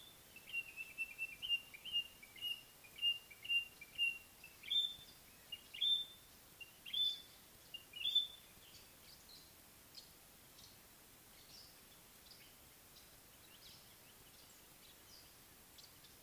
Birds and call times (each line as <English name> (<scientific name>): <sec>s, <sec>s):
White-browed Robin-Chat (Cossypha heuglini): 2.9s, 6.8s
Fischer's Lovebird (Agapornis fischeri): 11.5s